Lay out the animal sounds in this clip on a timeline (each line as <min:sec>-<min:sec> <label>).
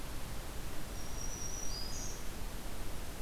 0:00.8-0:02.4 Black-throated Green Warbler (Setophaga virens)